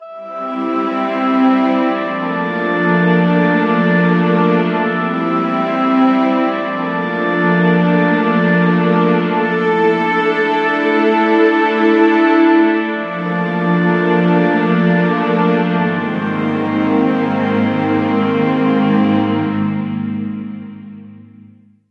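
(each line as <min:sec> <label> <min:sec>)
0:00.0 An orchestra plays string and wind instruments loudly, producing humming and melodic sounds. 0:21.9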